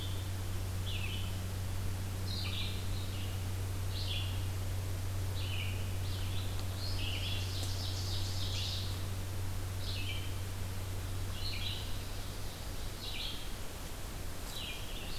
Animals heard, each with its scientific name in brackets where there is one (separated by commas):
Red-eyed Vireo (Vireo olivaceus), Ovenbird (Seiurus aurocapilla)